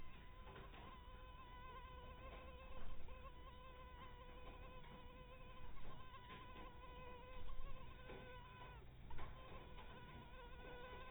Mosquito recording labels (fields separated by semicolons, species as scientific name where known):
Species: mosquito; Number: one; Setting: cup